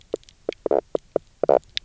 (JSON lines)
{"label": "biophony, knock croak", "recorder": "SoundTrap 300"}